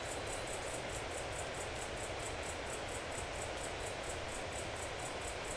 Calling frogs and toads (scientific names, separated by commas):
none